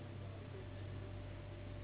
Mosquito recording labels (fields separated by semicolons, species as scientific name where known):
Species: Anopheles gambiae s.s.; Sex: female; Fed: unfed; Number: one; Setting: insect culture